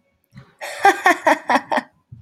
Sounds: Laughter